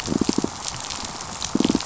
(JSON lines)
{"label": "biophony, pulse", "recorder": "SoundTrap 500"}